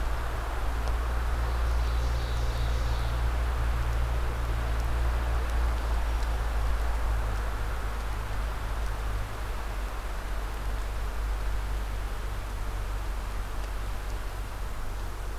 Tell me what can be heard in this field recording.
Ovenbird